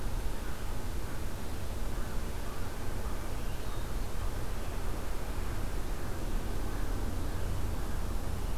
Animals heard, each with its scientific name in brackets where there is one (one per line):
American Crow (Corvus brachyrhynchos)